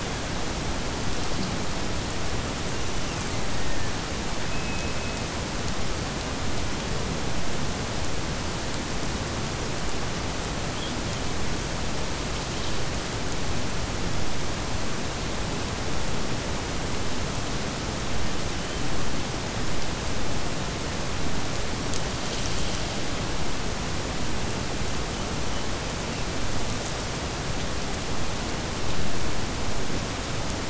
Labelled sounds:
2.7	4.0	killer whale, Bigg's (transient), Gulf of Alaska transient, 1.5 to 6.2 kHz

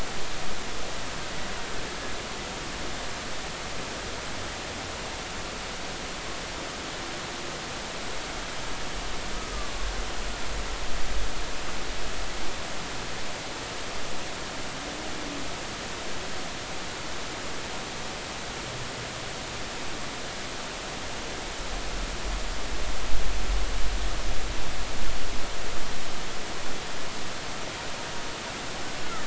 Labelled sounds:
9.5	9.9	killer whale, Bigg's (transient), 1.1 to 1.3 kHz
29.0	29.2	killer whale, Bigg's (transient), 1.1 to 1.5 kHz

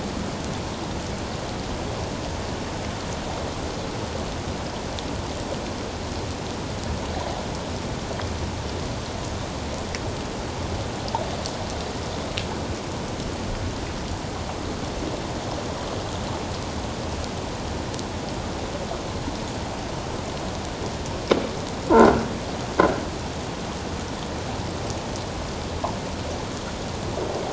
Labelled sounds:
21.9	22.1	croaking sound likely from a nearby submerged object, 1.3 to 1.6 kHz

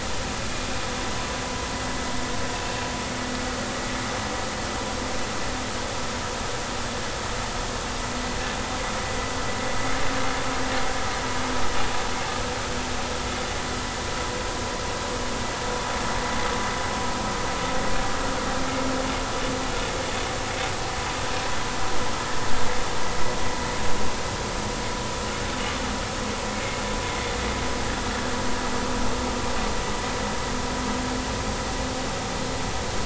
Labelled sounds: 18.7	18.9	vessel noise, 2.1 to 2.2 kHz

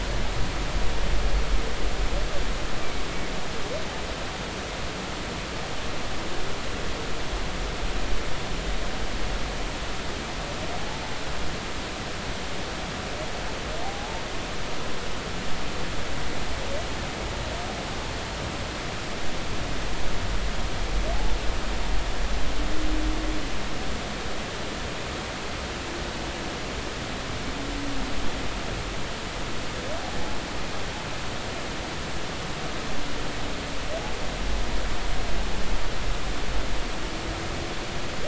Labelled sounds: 13.8	14.2	humpback whale, 0.80 to 0.96 kHz

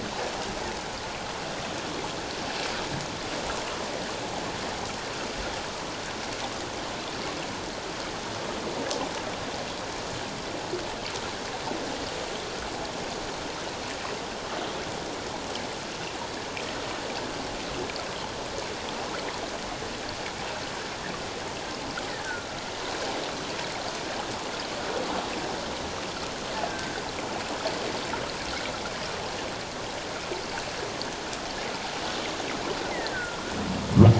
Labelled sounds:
26.6	26.9	killer whale, offshore, call OFF17, 1.5 to 1.8 kHz
32.9	33.5	killer whale, offshore, call OFF17, 1.1 to 2.2 kHz

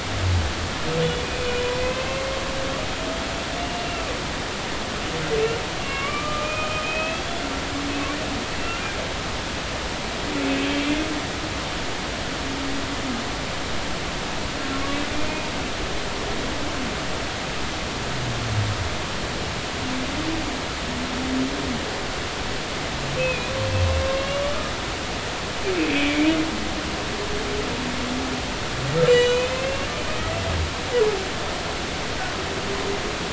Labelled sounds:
1.2	2.4	humpback whale, 2.1 to 2.6 kHz
3.6	4.0	humpback whale, 2.6 to 2.9 kHz
5.8	7.5	humpback whale, 1.1 to 3.5 kHz
8.6	8.8	humpback whale, 2.6 to 2.8 kHz
14.7	15.0	humpback whale, 1.1 to 1.2 kHz
23.2	23.5	humpback whale, 2.4 to 2.7 kHz
24.1	24.6	humpback whale, 2.7 to 3.0 kHz
25.9	26.3	humpback whale, 2.1 to 2.6 kHz
29.1	29.9	humpback whale, 2.4 to 7.5 kHz

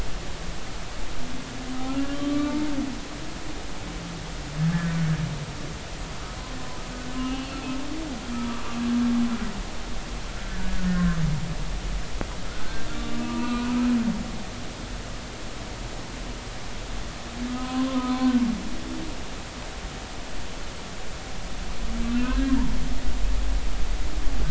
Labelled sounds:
2.1	2.6	humpback whale, 1.1 to 3.2 kHz
7.2	7.6	humpback whale, 2.6 to 3.0 kHz
10.8	11.2	humpback whale, 1.3 to 1.9 kHz
12.5	13.7	humpback whale, 0.90 to 3.5 kHz
17.5	18.3	humpback whale, 0.96 to 1.3 kHz
22.2	22.5	humpback whale, 1.4 to 1.7 kHz

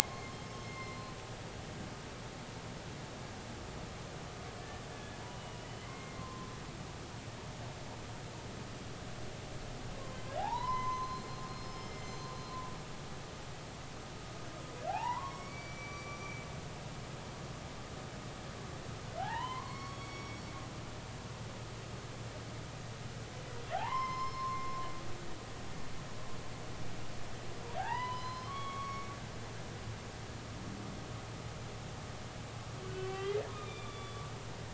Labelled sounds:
0.0	1.1	humpback whale, 0.80 to 5.4 kHz
4.6	6.5	humpback whale, 0.86 to 3.0 kHz
10.4	12.0	humpback whale, 0.80 to 6.2 kHz
13.0	13.3	humpback whale, 6.1 to 6.3 kHz
14.9	16.5	humpback whale, 0.80 to 5.6 kHz
19.2	20.2	humpback whale, 0.80 to 5.6 kHz
21.0	21.4	humpback whale, 2.2 to 2.4 kHz
23.7	24.8	humpback whale, 0.80 to 5.3 kHz
27.8	29.1	humpback whale, 0.80 to 5.2 kHz
32.9	34.2	humpback whale, 1.9 to 3.7 kHz

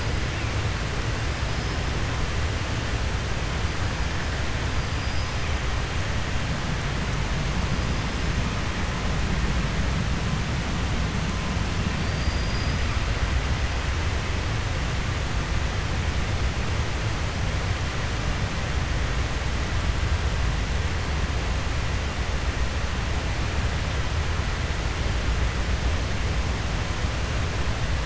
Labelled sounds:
4.9	5.3	killer whale, 4.8 to 5.1 kHz
12.0	12.8	killer whale, 4.5 to 5.1 kHz

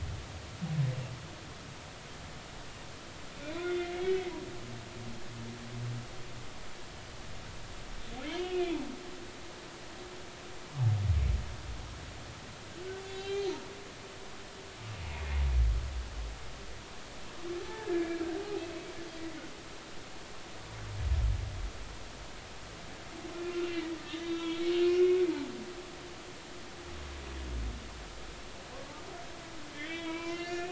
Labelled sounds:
3.6	4.3	humpback whale, 2.0 to 3.6 kHz
8.3	8.6	humpback whale, 2.8 to 3.4 kHz
13.1	13.6	humpback whale, 2.7 to 4.5 kHz
17.7	18.9	humpback whale, 1.5 to 2.7 kHz
23.7	25.2	humpback whale, 1.9 to 3.8 kHz
29.7	30.6	humpback whale, 0.93 to 5.7 kHz

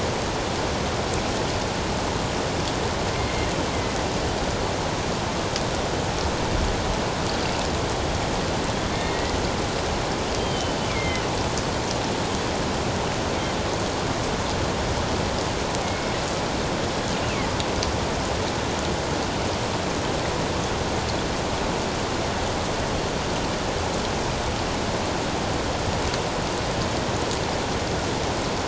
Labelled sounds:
3.1	3.5	killer whale, northern resident, G clan, 2.0 to 2.2 kHz
8.9	9.3	killer whale, northern resident, G clan, 1.8 to 2.1 kHz
10.4	11.2	killer whale, northern resident, G clan, 2.0 to 3.2 kHz
15.8	16.1	killer whale, northern resident, G clan, 2.1 to 2.2 kHz

